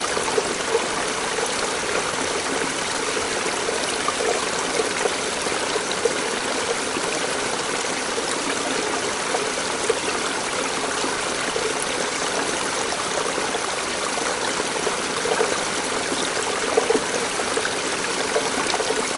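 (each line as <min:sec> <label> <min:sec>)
0:00.0 Water flowing. 0:19.2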